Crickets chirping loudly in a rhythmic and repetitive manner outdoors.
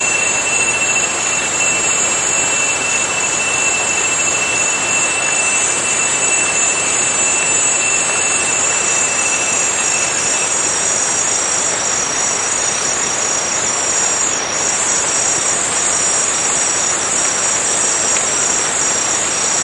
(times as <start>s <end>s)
9.2s 19.6s